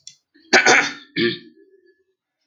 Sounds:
Throat clearing